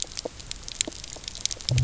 {"label": "biophony", "recorder": "SoundTrap 300"}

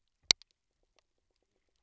{"label": "biophony, pulse", "recorder": "SoundTrap 300"}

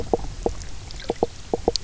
{"label": "biophony, knock croak", "recorder": "SoundTrap 300"}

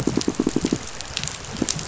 {"label": "biophony, pulse", "recorder": "SoundTrap 500"}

